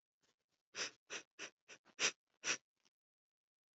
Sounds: Sniff